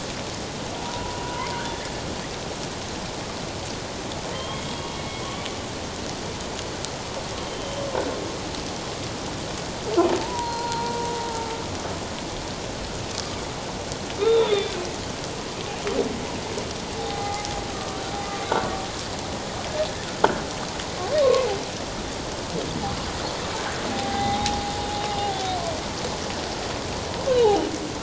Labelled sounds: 0.8	1.6	humpback whale, 0.91 to 1.2 kHz
4.3	5.2	humpback whale, 1.0 to 3.3 kHz
7.4	7.9	humpback whale, 3.0 to 3.2 kHz
10.2	11.1	humpback whale, 0.84 to 4.3 kHz
14.2	14.7	humpback whale, 1.2 to 3.8 kHz
17.0	18.0	humpback whale, 0.78 to 2.1 kHz
18.5	18.7	humpback whale, 1.3 to 1.6 kHz
21.2	21.5	humpback whale, 0.97 to 1.2 kHz
23.9	24.6	humpback whale, 0.78 to 3.8 kHz
27.3	27.7	humpback whale, 2.8 to 3.1 kHz

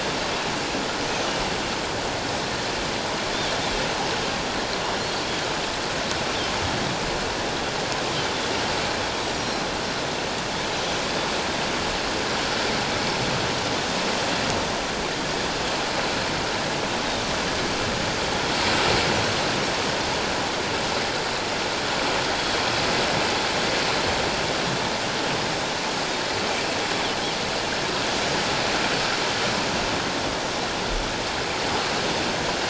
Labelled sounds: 9.3	9.6	Pacific white-sided dolphin, 5.4 to 5.8 kHz

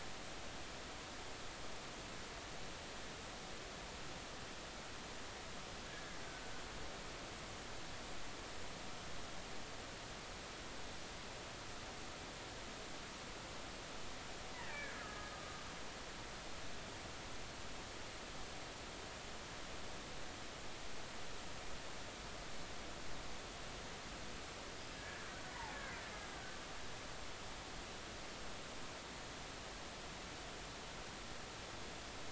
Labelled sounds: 5.9	6.2	killer whale, Bigg's (transient), 1.6 to 1.8 kHz
14.5	15.3	killer whale, Bigg's (transient), 1.2 to 2.0 kHz
16.3	16.6	killer whale, Bigg's (transient), 1.1 to 1.3 kHz
24.8	25.3	killer whale, Bigg's (transient), 1.6 to 5.1 kHz
25.5	25.8	killer whale, Bigg's (transient), 0.80 to 1.1 kHz

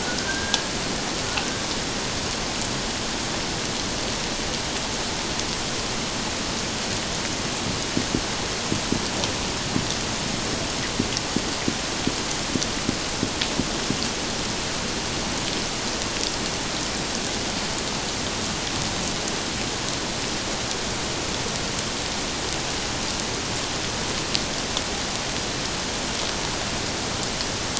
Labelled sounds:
0.0	0.7	killer whale, 1.4 to 1.7 kHz

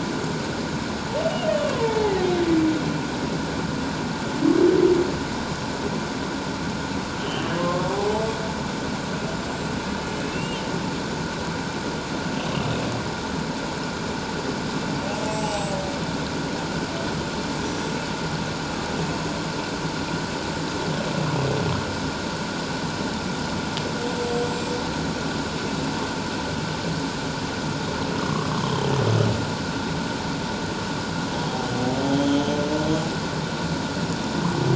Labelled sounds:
1.4	2.3	humpback whale, 0.78 to 3.7 kHz
7.2	7.9	humpback whale, 1.0 to 3.2 kHz
10.2	10.6	humpback whale, 2.5 to 2.9 kHz
15.2	15.8	humpback whale, 0.78 to 8.0 kHz
17.6	17.9	humpback whale, 5.7 to 6.2 kHz
28.2	28.9	humpback whale, 1.0 to 3.3 kHz
32.1	32.6	humpback whale, 3.0 to 3.4 kHz

